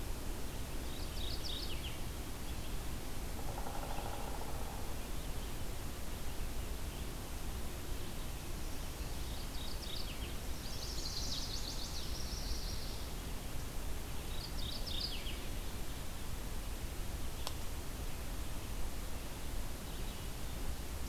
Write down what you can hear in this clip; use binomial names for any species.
Geothlypis philadelphia, Dryobates pubescens, Setophaga pensylvanica, Setophaga coronata